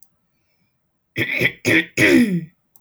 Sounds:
Throat clearing